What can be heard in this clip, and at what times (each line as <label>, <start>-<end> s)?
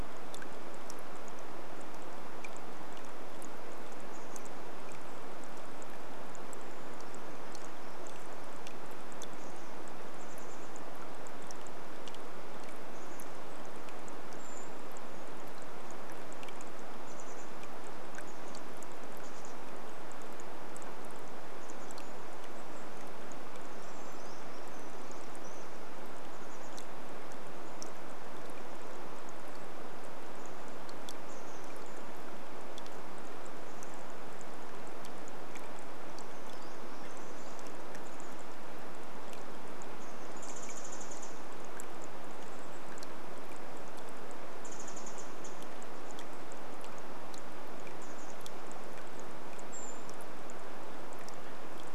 rain, 0-52 s
Chestnut-backed Chickadee call, 4-6 s
Brown Creeper song, 6-8 s
Chestnut-backed Chickadee call, 8-14 s
Brown Creeper call, 14-16 s
Chestnut-backed Chickadee call, 16-28 s
Brown Creeper song, 24-26 s
Chestnut-backed Chickadee call, 30-34 s
Brown Creeper song, 36-38 s
Chestnut-backed Chickadee call, 36-44 s
Pacific Wren call, 40-42 s
Pacific Wren call, 44-46 s
Brown Creeper call, 48-50 s
Chestnut-backed Chickadee call, 48-50 s